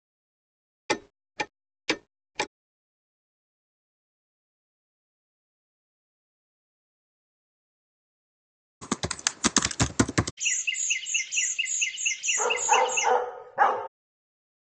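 At 0.89 seconds, a clock can be heard. Then, at 8.81 seconds, a computer keyboard is audible. After that, at 10.37 seconds, chirping is heard. Meanwhile, at 12.36 seconds, a dog barks.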